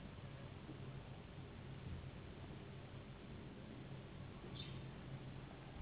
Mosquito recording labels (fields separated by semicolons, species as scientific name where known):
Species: Anopheles gambiae s.s.; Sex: female; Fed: unfed; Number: one; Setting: insect culture